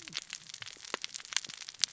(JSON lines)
{"label": "biophony, cascading saw", "recorder": "SoundTrap 600 or HydroMoth"}